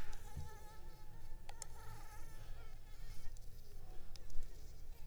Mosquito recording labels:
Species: Anopheles arabiensis; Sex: female; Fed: unfed; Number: one; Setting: cup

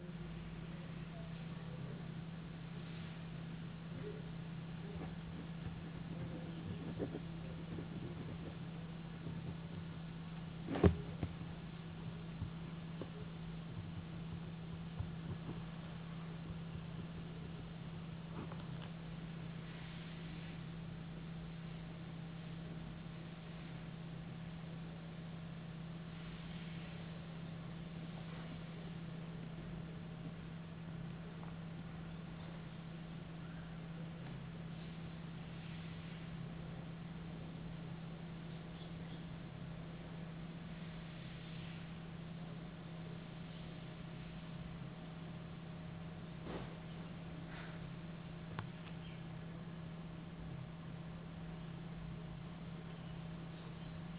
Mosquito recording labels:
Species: no mosquito; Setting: insect culture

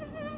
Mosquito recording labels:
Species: Anopheles quadriannulatus; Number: one; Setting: insect culture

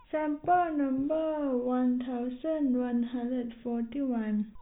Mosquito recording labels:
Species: no mosquito; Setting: cup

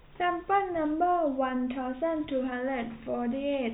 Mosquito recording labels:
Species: no mosquito; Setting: cup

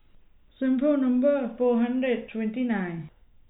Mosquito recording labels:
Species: no mosquito; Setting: cup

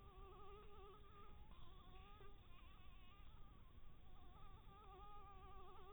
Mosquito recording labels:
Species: Anopheles dirus; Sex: female; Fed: blood-fed; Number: one; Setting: cup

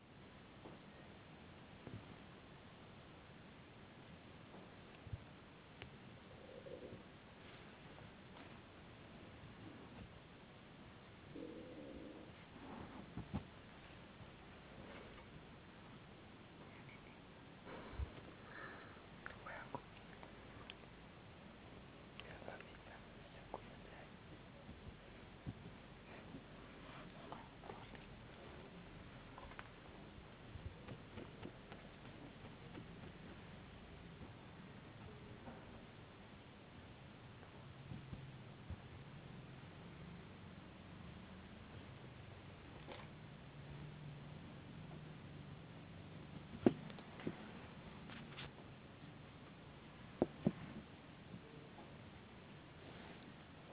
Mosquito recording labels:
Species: no mosquito; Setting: insect culture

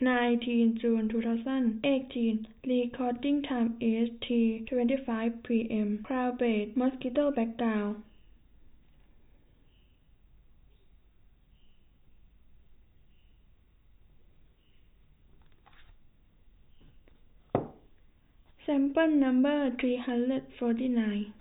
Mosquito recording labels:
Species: no mosquito; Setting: cup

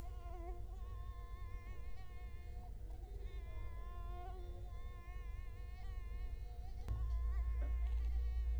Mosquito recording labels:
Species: Culex quinquefasciatus; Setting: cup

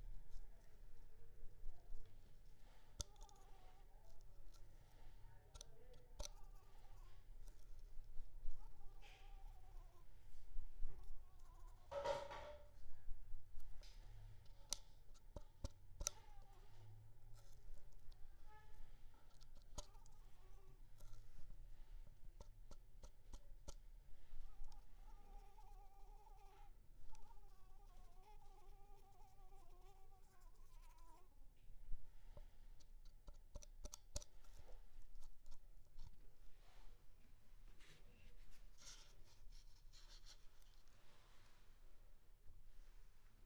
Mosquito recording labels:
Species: Anopheles arabiensis; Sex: female; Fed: unfed; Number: one; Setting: cup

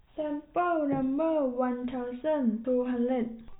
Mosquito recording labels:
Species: no mosquito; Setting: cup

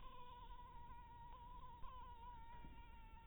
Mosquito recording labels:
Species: Anopheles harrisoni; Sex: female; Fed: blood-fed; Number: one; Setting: cup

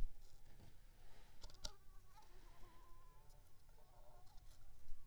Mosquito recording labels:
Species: Anopheles squamosus; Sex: female; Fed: unfed; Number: one; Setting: cup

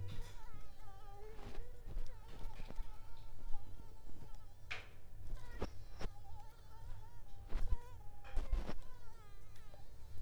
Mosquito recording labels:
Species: Mansonia africanus; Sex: female; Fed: unfed; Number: one; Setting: cup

